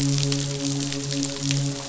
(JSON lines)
{"label": "biophony, midshipman", "recorder": "SoundTrap 500"}